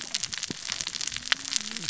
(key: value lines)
label: biophony, cascading saw
recorder: SoundTrap 600 or HydroMoth